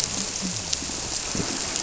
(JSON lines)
{"label": "biophony", "recorder": "SoundTrap 300"}